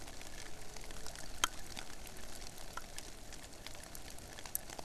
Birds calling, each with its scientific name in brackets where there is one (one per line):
Hawaiian Petrel (Pterodroma sandwichensis)